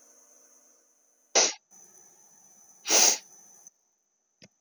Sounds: Sniff